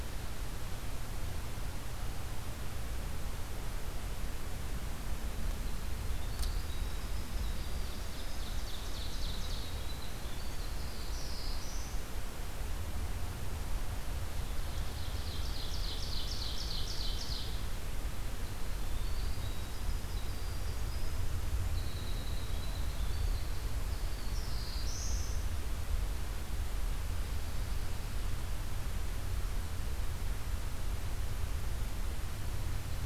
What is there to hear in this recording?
Winter Wren, Ovenbird, Black-throated Blue Warbler